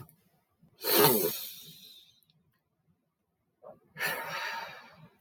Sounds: Throat clearing